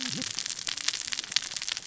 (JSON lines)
{"label": "biophony, cascading saw", "recorder": "SoundTrap 600 or HydroMoth"}